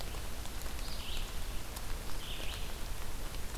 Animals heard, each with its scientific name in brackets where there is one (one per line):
Red-eyed Vireo (Vireo olivaceus)